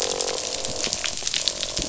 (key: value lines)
label: biophony, croak
recorder: SoundTrap 500